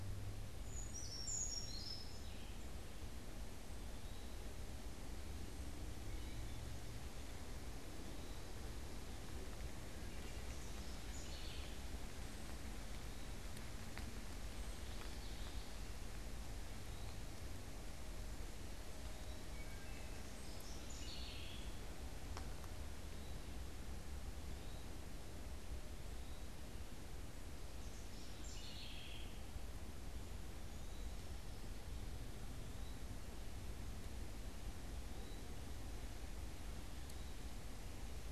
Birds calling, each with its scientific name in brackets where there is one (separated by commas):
Brown Creeper (Certhia americana), Eastern Wood-Pewee (Contopus virens), Wood Thrush (Hylocichla mustelina), unidentified bird, House Wren (Troglodytes aedon)